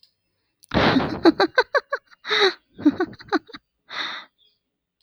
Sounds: Laughter